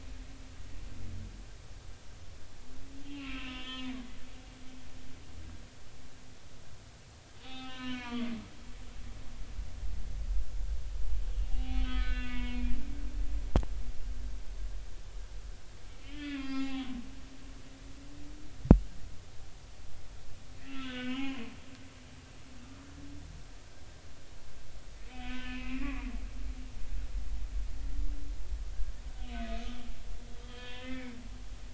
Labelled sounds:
3.0	4.6	humpback whale, 0.93 to 3.5 kHz
7.4	8.3	humpback whale, 0.80 to 4.1 kHz
11.3	12.8	humpback whale, 0.80 to 4.1 kHz
16.0	16.9	humpback whale, 0.80 to 4.9 kHz
20.6	21.4	humpback whale, 0.93 to 3.6 kHz
22.6	22.9	humpback whale, 1.1 to 1.2 kHz
25.1	26.6	humpback whale, 1.0 to 3.2 kHz
30.4	31.2	humpback whale, 0.96 to 3.8 kHz

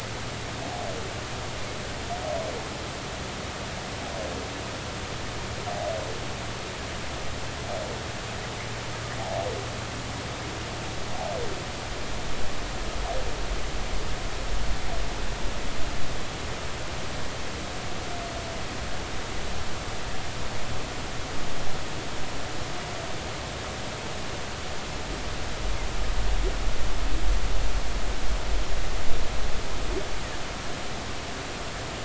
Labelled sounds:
9.2	9.5	humpback whale, 0.80 to 0.90 kHz

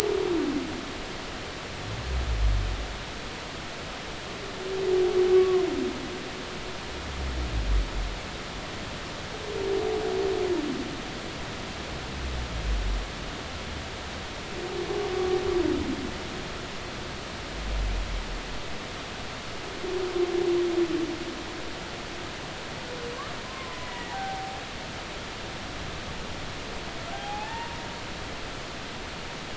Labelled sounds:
5.3	5.6	humpback whale, 0.99 to 1.2 kHz
23.5	24.6	humpback whale, 0.80 to 2.0 kHz
27.1	27.8	humpback whale, 0.80 to 1.9 kHz

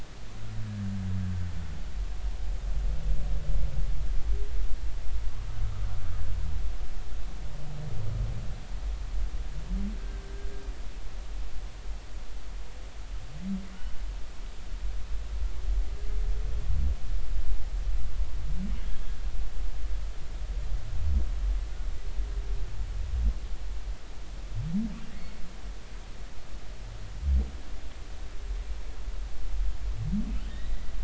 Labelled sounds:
25.1	25.4	humpback whale, 2.0 to 2.2 kHz

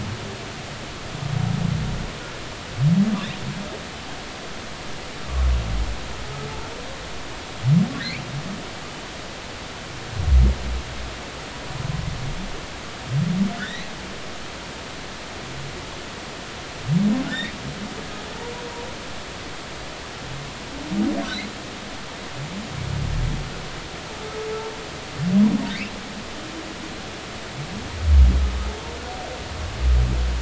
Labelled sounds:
13.6	13.9	humpback whale, 1.4 to 4.1 kHz
25.7	25.9	humpback whale, 1.8 to 2.8 kHz

